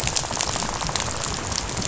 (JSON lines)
{"label": "biophony, rattle", "recorder": "SoundTrap 500"}